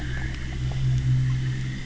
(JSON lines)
{"label": "anthrophony, boat engine", "recorder": "SoundTrap 300"}